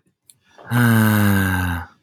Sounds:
Sigh